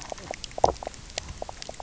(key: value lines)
label: biophony, knock croak
recorder: SoundTrap 300